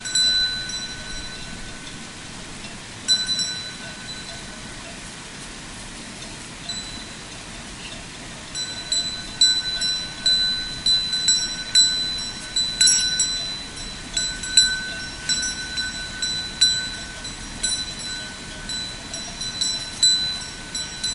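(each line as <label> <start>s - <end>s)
Bells ringing. 0.0s - 1.6s
Continuous water dropping sounds in the background. 0.0s - 21.1s
White noise. 0.0s - 21.1s
Bells ringing. 3.0s - 4.6s
A muffled bell is ringing. 6.6s - 7.0s
A bell rings continuously and rhythmically. 8.3s - 21.1s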